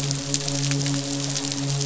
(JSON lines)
{"label": "biophony, midshipman", "recorder": "SoundTrap 500"}